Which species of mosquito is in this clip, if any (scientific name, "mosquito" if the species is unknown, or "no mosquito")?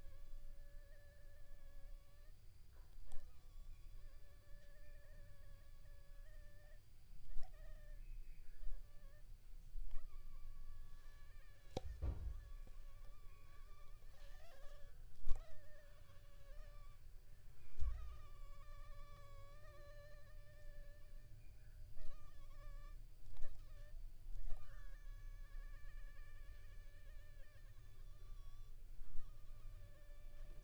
Anopheles funestus s.l.